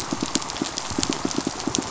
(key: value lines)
label: biophony, pulse
recorder: SoundTrap 500